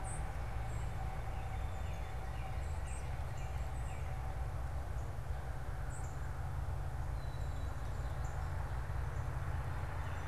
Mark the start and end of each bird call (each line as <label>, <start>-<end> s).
Song Sparrow (Melospiza melodia), 0.0-6.4 s
Northern Cardinal (Cardinalis cardinalis), 1.0-4.3 s
Northern Cardinal (Cardinalis cardinalis), 8.2-8.3 s